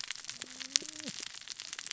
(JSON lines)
{"label": "biophony, cascading saw", "recorder": "SoundTrap 600 or HydroMoth"}